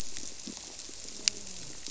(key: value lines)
label: biophony
recorder: SoundTrap 300

label: biophony, grouper
recorder: SoundTrap 300